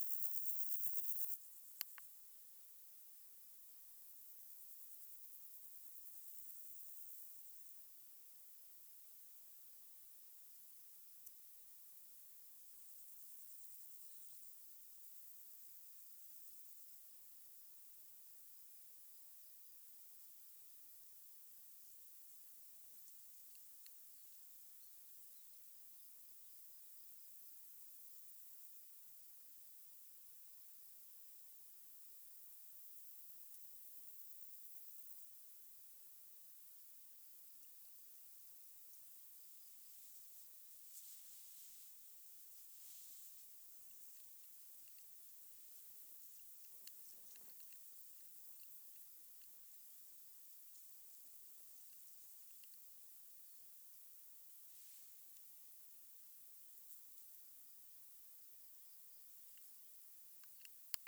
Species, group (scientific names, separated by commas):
Chorthippus bornhalmi, Orthoptera